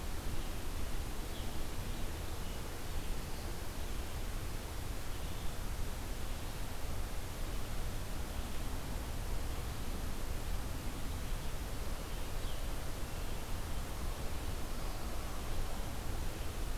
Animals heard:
Red-eyed Vireo (Vireo olivaceus)

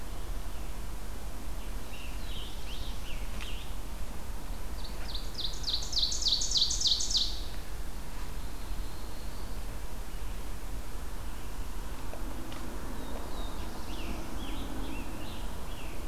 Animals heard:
Prairie Warbler (Setophaga discolor), Black-throated Blue Warbler (Setophaga caerulescens), Scarlet Tanager (Piranga olivacea), Ovenbird (Seiurus aurocapilla)

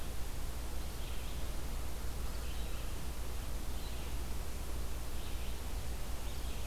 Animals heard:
Red-eyed Vireo (Vireo olivaceus)

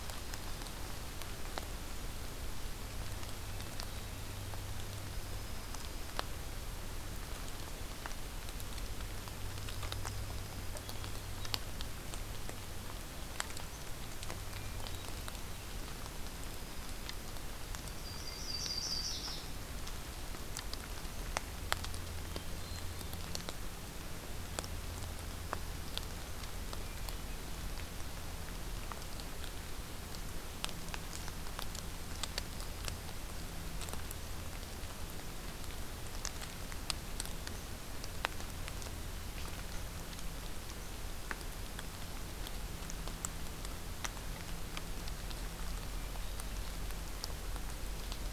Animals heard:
Hermit Thrush (Catharus guttatus), Yellow-rumped Warbler (Setophaga coronata), Dark-eyed Junco (Junco hyemalis)

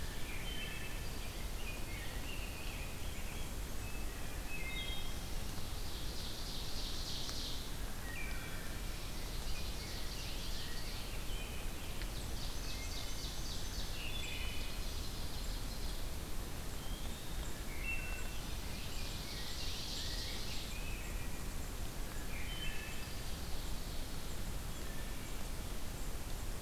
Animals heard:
Ovenbird (Seiurus aurocapilla), Wood Thrush (Hylocichla mustelina), Eastern Wood-Pewee (Contopus virens), Blackburnian Warbler (Setophaga fusca), Rose-breasted Grosbeak (Pheucticus ludovicianus)

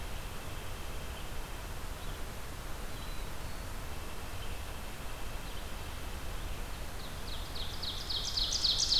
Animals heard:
Red-eyed Vireo (Vireo olivaceus), White-breasted Nuthatch (Sitta carolinensis), Black-throated Blue Warbler (Setophaga caerulescens), Ovenbird (Seiurus aurocapilla)

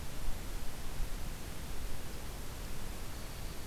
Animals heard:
Black-throated Green Warbler (Setophaga virens)

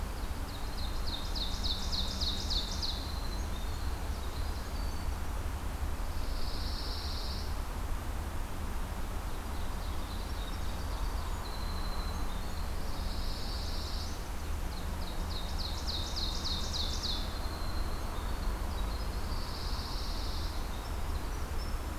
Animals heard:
Pine Warbler (Setophaga pinus), Winter Wren (Troglodytes hiemalis), Ovenbird (Seiurus aurocapilla)

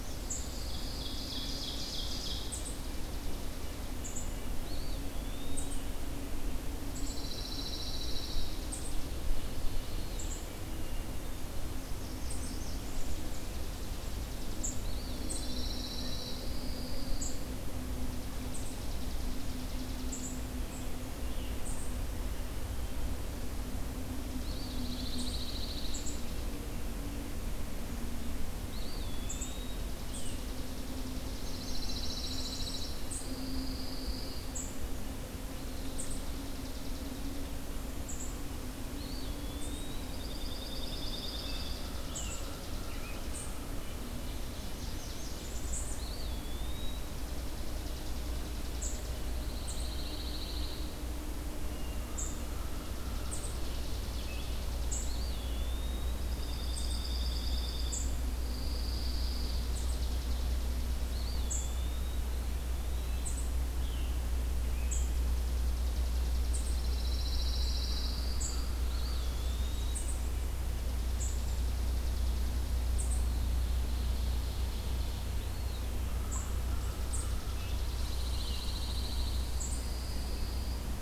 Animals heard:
Red-breasted Nuthatch (Sitta canadensis), Hermit Thrush (Catharus guttatus), Red-eyed Vireo (Vireo olivaceus), Pine Warbler (Setophaga pinus), Blackburnian Warbler (Setophaga fusca), Black-and-white Warbler (Mniotilta varia), unidentified call, American Crow (Corvus brachyrhynchos), Eastern Wood-Pewee (Contopus virens), Chipping Sparrow (Spizella passerina), Red Squirrel (Tamiasciurus hudsonicus), Ovenbird (Seiurus aurocapilla)

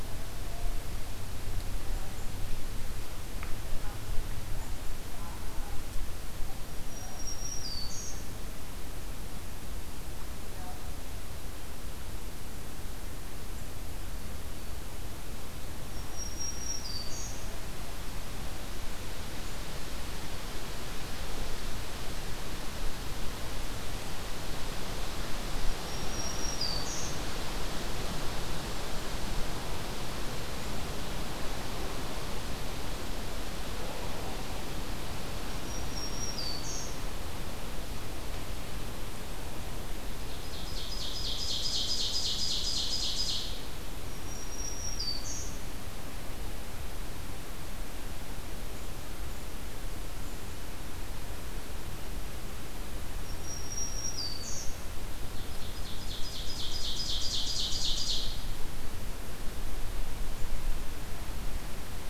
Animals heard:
Ovenbird (Seiurus aurocapilla), Black-throated Green Warbler (Setophaga virens)

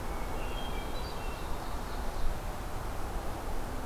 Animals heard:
Ovenbird (Seiurus aurocapilla), Hermit Thrush (Catharus guttatus)

